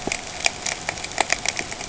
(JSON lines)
{"label": "ambient", "recorder": "HydroMoth"}